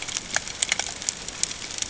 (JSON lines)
{"label": "ambient", "recorder": "HydroMoth"}